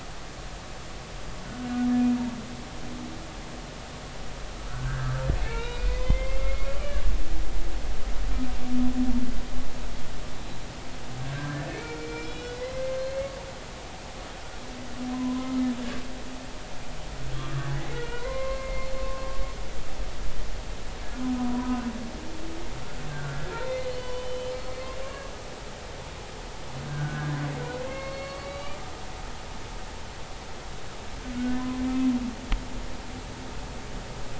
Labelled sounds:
1.6	1.9	humpback whale, 1.4 to 1.5 kHz
4.5	6.7	humpback whale, 0.86 to 4.0 kHz
11.2	13.3	humpback whale, 0.99 to 5.3 kHz
15.1	15.6	humpback whale, 0.96 to 1.3 kHz
17.3	19.2	humpback whale, 0.90 to 2.2 kHz
21.4	21.9	humpback whale, 0.93 to 1.7 kHz
23.1	24.5	humpback whale, 0.96 to 3.6 kHz
26.8	27.4	humpback whale, 1.4 to 1.8 kHz
27.9	28.8	humpback whale, 1.0 to 4.7 kHz

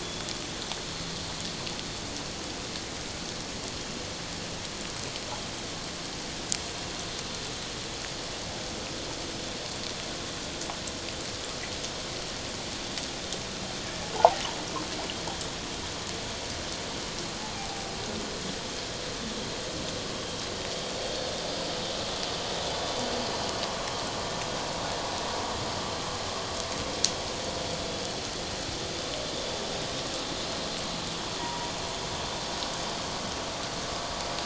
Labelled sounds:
14.2	14.4	water noise, 0.78 to 1.1 kHz

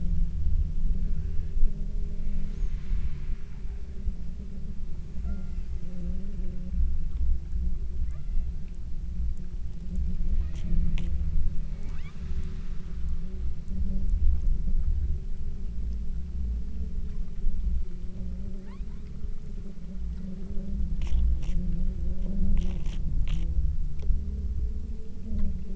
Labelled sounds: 5.2	5.8	killer whale, southern Alaska resident, 0.50 to 2.9 kHz
8.1	8.9	killer whale, southern Alaska resident, 0.43 to 5.7 kHz
10.4	10.8	killer whale, southern Alaska resident, 1.0 to 2.5 kHz
11.8	12.3	killer whale, southern Alaska resident, 0.59 to 4.0 kHz
18.7	19.3	killer whale, southern Alaska resident, 0.73 to 4.8 kHz

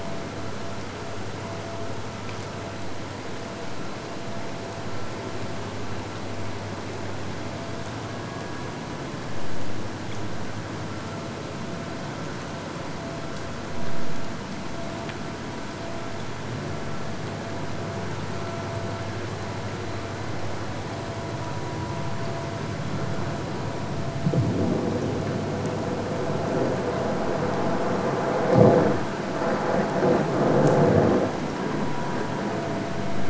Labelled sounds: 8.0	9.3	killer whale, Bigg's (transient), AT1 transient, 0.78 to 4.4 kHz

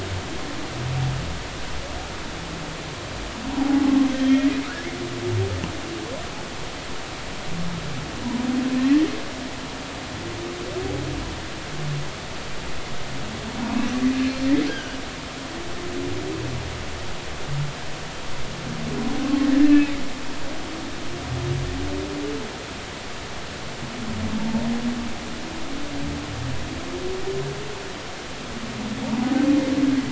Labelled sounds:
3.5	4.5	humpback whale, 0.80 to 3.3 kHz
14.7	16.0	humpback whale, 1.4 to 3.3 kHz
19.2	19.9	humpback whale, 1.0 to 2.7 kHz
24.4	24.6	humpback whale, 0.83 to 0.93 kHz

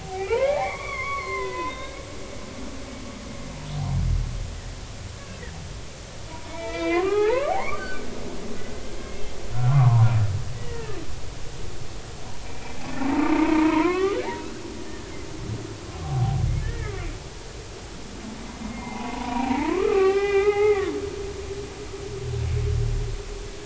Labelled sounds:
0.0	2.0	humpback whale, 0.80 to 4.5 kHz
6.5	8.1	humpback whale, 0.80 to 3.5 kHz
9.5	11.0	humpback whale, 0.80 to 2.0 kHz
12.4	15.1	humpback whale, 0.86 to 3.6 kHz
16.0	17.1	humpback whale, 0.80 to 1.9 kHz
18.7	21.0	humpback whale, 0.80 to 5.3 kHz

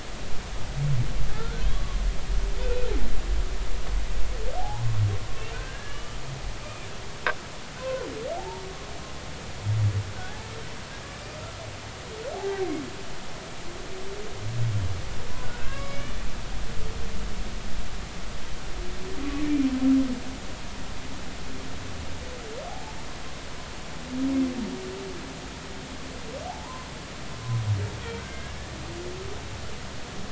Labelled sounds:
1.3	2.0	humpback whale, 1.0 to 1.6 kHz
2.6	2.9	humpback whale, 2.4 to 2.6 kHz
4.6	5.0	humpback whale, 0.80 to 1.1 kHz
5.5	6.2	humpback whale, 1.1 to 3.0 kHz
6.6	6.9	humpback whale, 2.3 to 2.5 kHz
8.4	8.6	humpback whale, 0.80 to 0.99 kHz
10.2	10.4	humpback whale, 1.4 to 1.8 kHz
12.3	12.7	humpback whale, 0.80 to 0.93 kHz
15.6	16.2	humpback whale, 1.0 to 2.8 kHz
22.7	22.9	humpback whale, 0.80 to 0.93 kHz
26.4	26.9	humpback whale, 0.80 to 1.1 kHz
28.2	28.7	humpback whale, 1.5 to 1.8 kHz

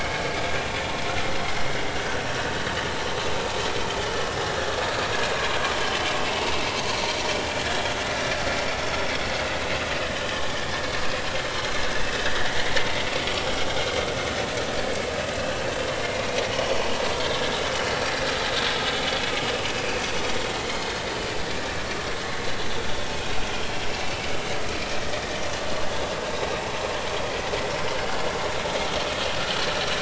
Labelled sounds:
7.7	7.9	vessel noise, 3.2 to 3.4 kHz
10.0	10.5	vessel noise, 1.6 to 3.3 kHz
19.7	20.0	vessel noise, 2.3 to 2.8 kHz

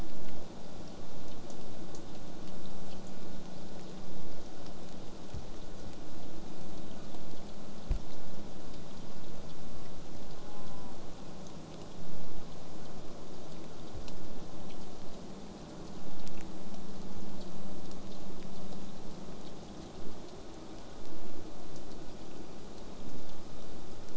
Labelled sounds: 10.3	11.0	killer whale, southern resident, J pod, call S04, 0.54 to 1.6 kHz

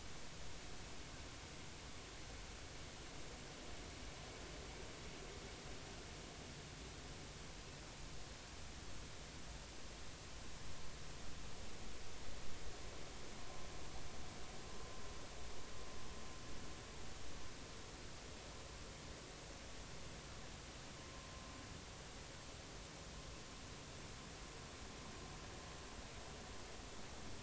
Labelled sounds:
21.0	21.3	vessel noise, 1.0 to 1.1 kHz

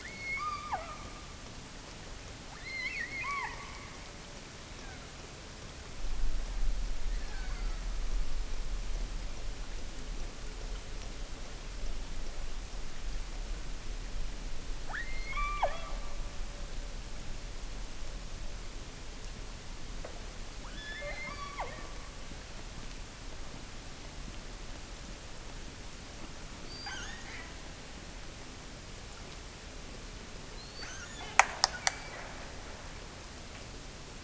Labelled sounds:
0.0	1.2	killer whale, offshore, 0.41 to 5.2 kHz
2.5	3.7	killer whale, offshore, 0.70 to 5.9 kHz
4.6	5.2	killer whale, offshore, 0.50 to 2.9 kHz
7.1	8.0	killer whale, offshore, 0.55 to 5.0 kHz
14.8	16.1	killer whale, offshore, 0.48 to 4.5 kHz
20.7	22.0	killer whale, offshore, 0.23 to 5.9 kHz
26.6	27.6	killer whale, offshore, 0.59 to 7.0 kHz
30.7	31.5	killer whale, offshore, 0.59 to 7.1 kHz

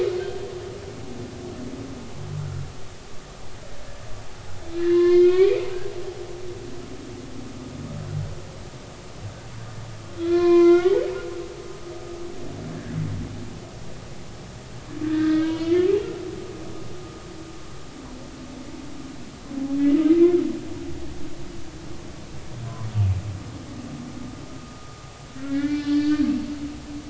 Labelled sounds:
0.2	0.4	humpback whale, 1.5 to 1.7 kHz
2.4	2.7	humpback whale, 1.3 to 1.5 kHz
4.7	5.7	humpback whale, 0.99 to 5.0 kHz
10.2	11.1	humpback whale, 0.96 to 4.3 kHz
15.0	16.1	humpback whale, 1.2 to 3.3 kHz
25.5	26.3	humpback whale, 1.4 to 4.2 kHz

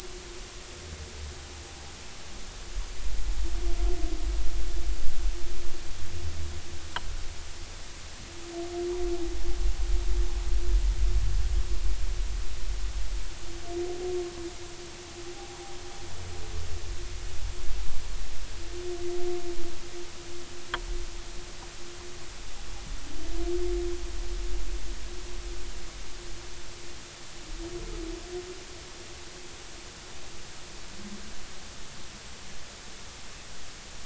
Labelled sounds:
15.2	15.6	humpback whale, 0.80 to 0.86 kHz

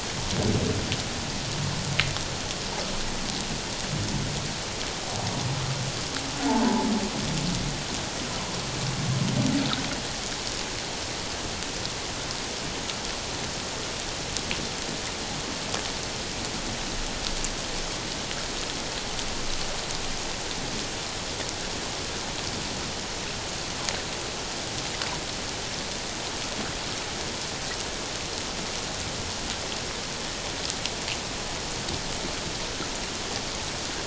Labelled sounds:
6.5	6.7	humpback whale, 0.81 to 1.1 kHz

